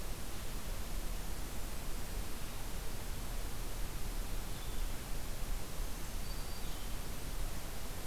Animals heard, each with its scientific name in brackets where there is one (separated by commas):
Black-throated Green Warbler (Setophaga virens), Blue-headed Vireo (Vireo solitarius)